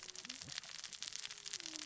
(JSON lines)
{"label": "biophony, cascading saw", "recorder": "SoundTrap 600 or HydroMoth"}